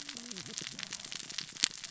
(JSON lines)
{"label": "biophony, cascading saw", "recorder": "SoundTrap 600 or HydroMoth"}